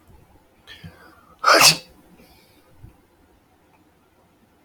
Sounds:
Sneeze